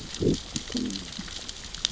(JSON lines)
{"label": "biophony, growl", "recorder": "SoundTrap 600 or HydroMoth"}